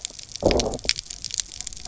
{"label": "biophony, low growl", "recorder": "SoundTrap 300"}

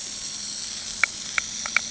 {"label": "anthrophony, boat engine", "recorder": "HydroMoth"}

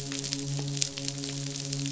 {"label": "biophony, midshipman", "recorder": "SoundTrap 500"}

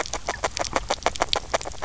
{"label": "biophony, grazing", "recorder": "SoundTrap 300"}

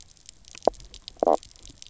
{"label": "biophony, knock croak", "recorder": "SoundTrap 300"}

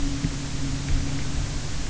{"label": "anthrophony, boat engine", "recorder": "SoundTrap 300"}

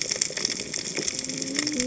{"label": "biophony, cascading saw", "recorder": "HydroMoth"}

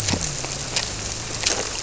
{"label": "biophony", "recorder": "SoundTrap 300"}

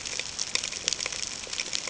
{"label": "ambient", "recorder": "HydroMoth"}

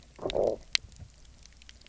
{"label": "biophony, low growl", "recorder": "SoundTrap 300"}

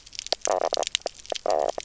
{"label": "biophony", "recorder": "SoundTrap 300"}
{"label": "biophony, knock croak", "recorder": "SoundTrap 300"}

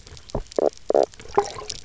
{"label": "biophony, knock croak", "recorder": "SoundTrap 300"}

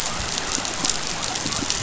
{"label": "biophony", "recorder": "SoundTrap 500"}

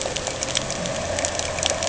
{"label": "anthrophony, boat engine", "recorder": "HydroMoth"}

